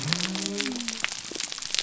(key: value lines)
label: biophony
recorder: SoundTrap 300